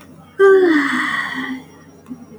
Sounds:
Sigh